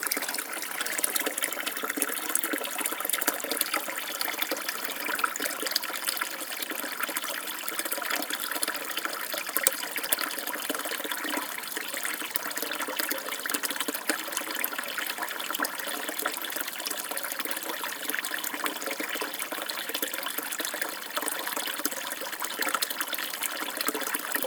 does the water get louder?
no